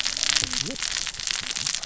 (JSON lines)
{"label": "biophony, cascading saw", "recorder": "SoundTrap 600 or HydroMoth"}